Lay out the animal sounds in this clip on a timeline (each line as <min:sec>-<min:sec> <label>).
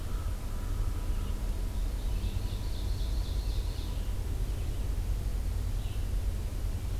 0:00.0-0:01.4 American Crow (Corvus brachyrhynchos)
0:00.0-0:07.0 Red-eyed Vireo (Vireo olivaceus)
0:02.0-0:04.0 Ovenbird (Seiurus aurocapilla)